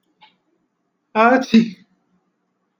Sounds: Sneeze